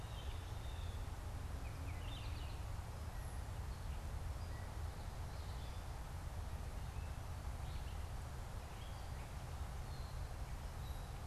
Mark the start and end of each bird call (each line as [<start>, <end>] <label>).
[0.00, 2.50] Red-eyed Vireo (Vireo olivaceus)
[3.20, 11.20] Gray Catbird (Dumetella carolinensis)